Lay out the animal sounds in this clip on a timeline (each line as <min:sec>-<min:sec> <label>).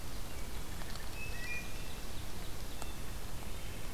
0:00.8-0:03.1 Ovenbird (Seiurus aurocapilla)
0:01.0-0:01.9 Wood Thrush (Hylocichla mustelina)
0:03.4-0:03.9 Wood Thrush (Hylocichla mustelina)